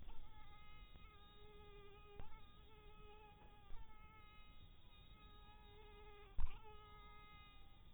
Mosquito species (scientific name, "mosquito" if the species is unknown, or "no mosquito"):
mosquito